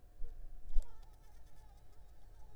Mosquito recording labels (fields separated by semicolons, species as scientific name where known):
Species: Anopheles arabiensis; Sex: female; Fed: unfed; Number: one; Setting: cup